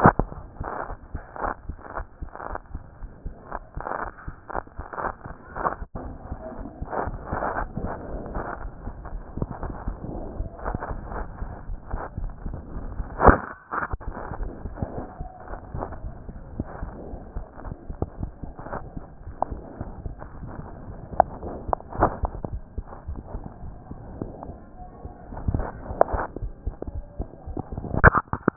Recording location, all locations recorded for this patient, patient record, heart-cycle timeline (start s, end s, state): aortic valve (AV)
aortic valve (AV)+pulmonary valve (PV)+tricuspid valve (TV)+mitral valve (MV)
#Age: Child
#Sex: Female
#Height: 130.0 cm
#Weight: 22.9 kg
#Pregnancy status: False
#Murmur: Absent
#Murmur locations: nan
#Most audible location: nan
#Systolic murmur timing: nan
#Systolic murmur shape: nan
#Systolic murmur grading: nan
#Systolic murmur pitch: nan
#Systolic murmur quality: nan
#Diastolic murmur timing: nan
#Diastolic murmur shape: nan
#Diastolic murmur grading: nan
#Diastolic murmur pitch: nan
#Diastolic murmur quality: nan
#Outcome: Normal
#Campaign: 2014 screening campaign
0.00	1.02	unannotated
1.02	1.14	diastole
1.14	1.24	S1
1.24	1.42	systole
1.42	1.54	S2
1.54	1.69	diastole
1.69	1.79	S1
1.79	1.96	systole
1.96	2.06	S2
2.06	2.21	diastole
2.21	2.30	S1
2.30	2.48	systole
2.48	2.58	S2
2.58	2.74	diastole
2.74	2.82	S1
2.82	3.00	systole
3.00	3.10	S2
3.10	3.26	diastole
3.26	3.34	S1
3.34	3.52	systole
3.52	3.60	S2
3.60	3.76	diastole
3.76	3.84	S1
3.84	4.02	systole
4.02	4.12	S2
4.12	4.27	diastole
4.27	4.36	S1
4.36	4.54	systole
4.54	4.64	S2
4.64	4.78	diastole
4.78	28.56	unannotated